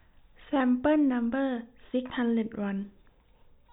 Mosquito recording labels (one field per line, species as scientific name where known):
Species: no mosquito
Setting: cup